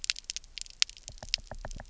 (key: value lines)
label: biophony, knock
recorder: SoundTrap 300